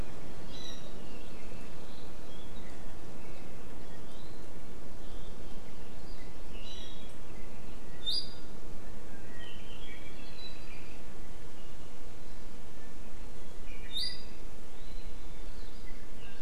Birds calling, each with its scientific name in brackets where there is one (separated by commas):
Iiwi (Drepanis coccinea), Apapane (Himatione sanguinea)